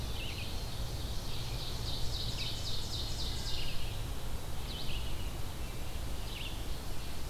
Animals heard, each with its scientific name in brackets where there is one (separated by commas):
Ovenbird (Seiurus aurocapilla), Black-throated Blue Warbler (Setophaga caerulescens), Red-eyed Vireo (Vireo olivaceus)